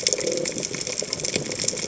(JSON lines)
{"label": "biophony", "recorder": "HydroMoth"}